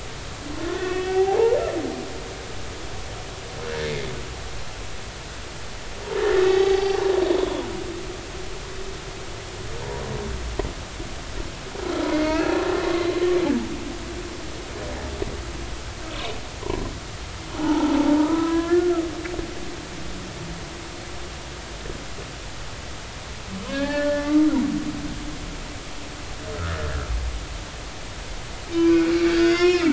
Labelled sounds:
0.5	1.6	humpback whale, 0.80 to 2.7 kHz
3.6	3.9	humpback whale, 1.4 to 1.9 kHz
6.4	7.0	humpback whale, 0.80 to 4.8 kHz
12.1	12.6	humpback whale, 1.2 to 2.7 kHz
17.6	19.0	humpback whale, 0.80 to 1.8 kHz
23.7	24.4	humpback whale, 0.83 to 3.3 kHz
28.7	29.9	humpback whale, 0.99 to 6.9 kHz

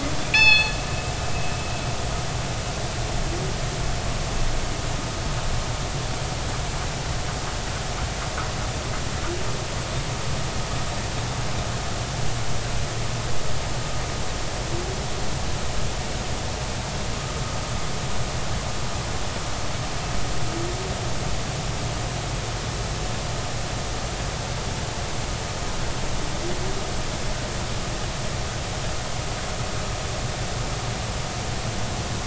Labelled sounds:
0.2	0.7	killer whale, northern resident, G clan, call N24ii, 1.7 to 5.3 kHz

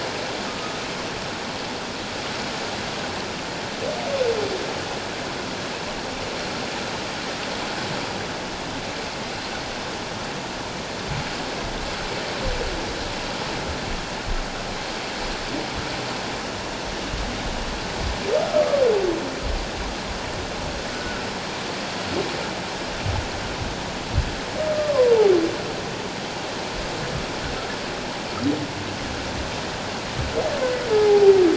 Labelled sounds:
0.5	0.8	humpback whale, 1.2 to 1.3 kHz
20.9	21.3	humpback whale, 1.3 to 1.5 kHz
24.7	25.2	humpback whale, 0.91 to 1.2 kHz
30.9	31.3	humpback whale, 0.78 to 0.88 kHz

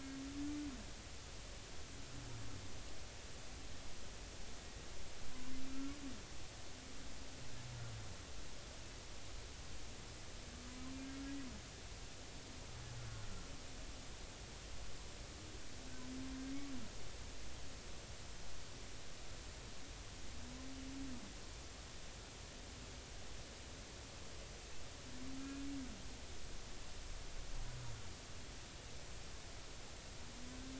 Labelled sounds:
25.4	25.7	humpback whale, 1.6 to 2.6 kHz

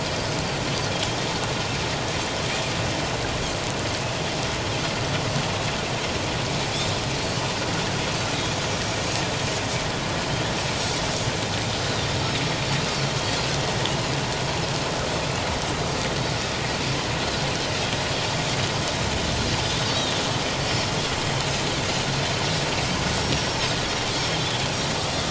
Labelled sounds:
19.9	20.2	Pacific white-sided dolphin, 3.4 to 4.0 kHz
23.2	23.6	Pacific white-sided dolphin, 5.4 to 5.8 kHz
24.4	24.7	Pacific white-sided dolphin, 3.1 to 3.5 kHz

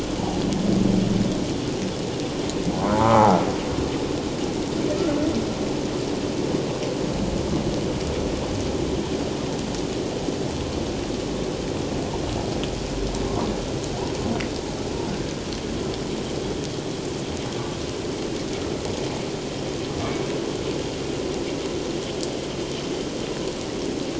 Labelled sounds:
0.2	0.4	humpback whale, 0.78 to 0.97 kHz
2.9	3.5	humpback whale, 0.81 to 1.4 kHz

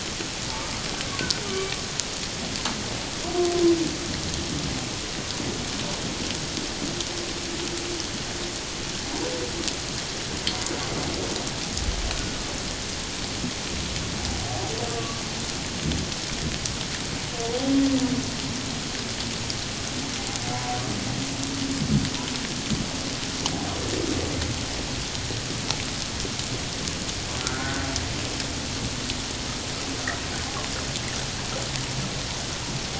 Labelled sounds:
1.4	1.8	humpback whale, 1.1 to 2.4 kHz
14.9	15.2	humpback whale, 1.1 to 1.2 kHz
27.4	27.8	humpback whale, 1.2 to 1.6 kHz

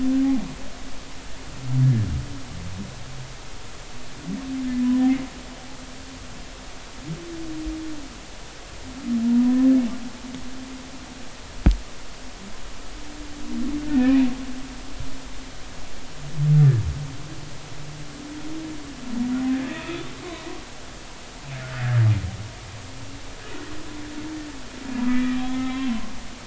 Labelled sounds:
9.2	9.7	humpback whale, 0.90 to 1.1 kHz
13.8	14.3	humpback whale, 1.7 to 2.6 kHz
19.5	20.0	humpback whale, 1.7 to 3.7 kHz
25.1	25.8	humpback whale, 1.8 to 2.5 kHz

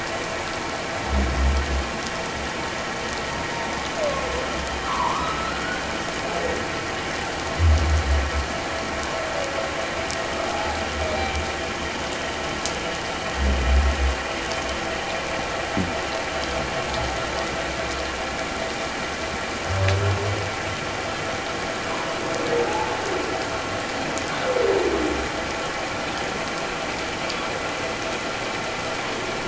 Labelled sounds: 4.9	5.8	humpback whale, 0.88 to 1.6 kHz
10.5	10.8	humpback whale, 0.78 to 0.94 kHz
11.1	11.4	humpback whale, 2.2 to 2.4 kHz
21.9	22.9	humpback whale, 0.78 to 1.1 kHz

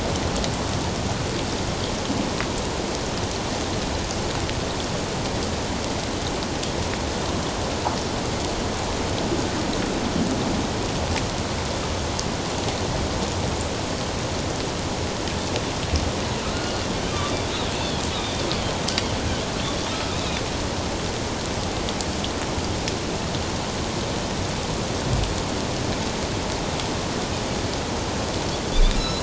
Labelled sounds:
17.1	18.5	Pacific white-sided dolphin, 3.3 to 3.9 kHz
20.2	20.4	Pacific white-sided dolphin, 3.5 to 4.0 kHz
28.7	29.2	Pacific white-sided dolphin, 3.4 to 4.2 kHz

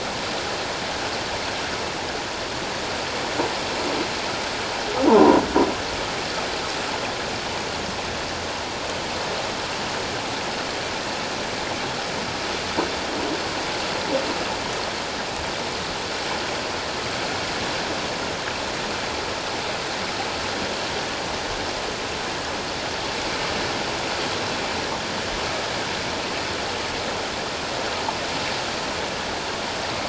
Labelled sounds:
5.1	5.4	croaking sound likely from a nearby submerged object, 0.84 to 1.1 kHz

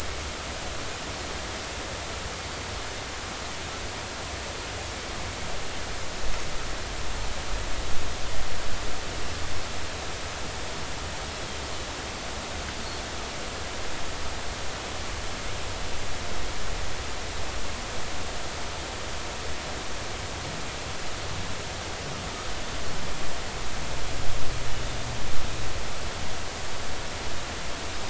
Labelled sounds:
11.4	11.6	Pacific white-sided dolphin, 3.1 to 3.4 kHz

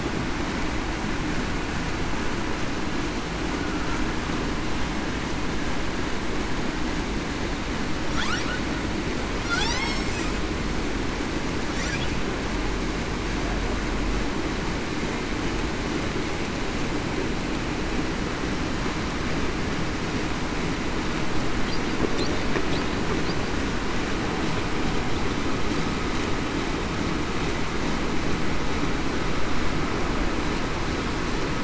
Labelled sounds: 9.7	10.0	humpback whale, 1.9 to 2.2 kHz

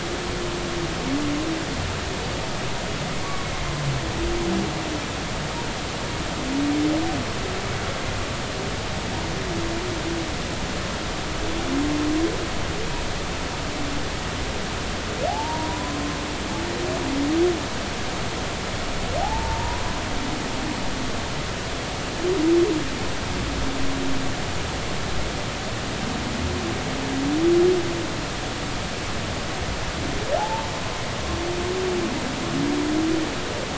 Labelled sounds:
3.2	3.5	humpback whale, 1.1 to 1.2 kHz
15.3	16.0	humpback whale, 0.80 to 1.1 kHz
19.2	19.8	humpback whale, 0.80 to 0.99 kHz
30.4	30.7	humpback whale, 0.80 to 1.0 kHz

